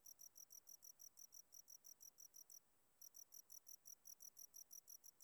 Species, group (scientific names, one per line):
Gryllus bimaculatus
Orthoptera